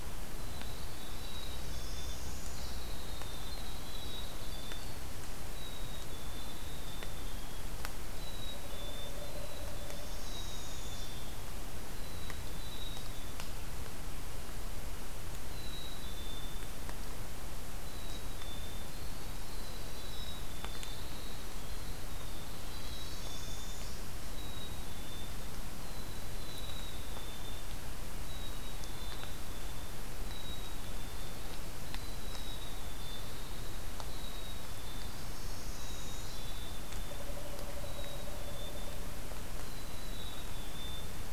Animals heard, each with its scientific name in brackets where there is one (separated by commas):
Pileated Woodpecker (Dryocopus pileatus), Northern Parula (Setophaga americana), Winter Wren (Troglodytes hiemalis), Black-capped Chickadee (Poecile atricapillus)